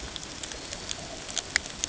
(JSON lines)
{"label": "ambient", "recorder": "HydroMoth"}